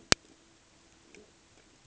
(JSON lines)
{"label": "ambient", "recorder": "HydroMoth"}